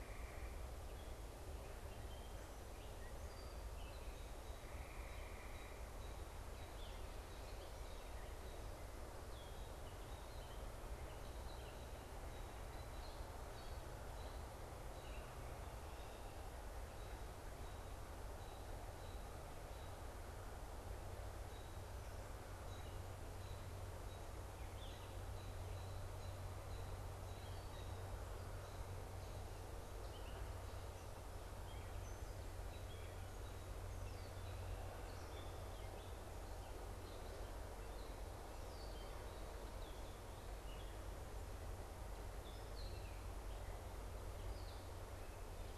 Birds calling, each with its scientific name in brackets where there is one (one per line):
unidentified bird
Red-winged Blackbird (Agelaius phoeniceus)
Gray Catbird (Dumetella carolinensis)